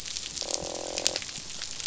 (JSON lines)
{"label": "biophony, croak", "recorder": "SoundTrap 500"}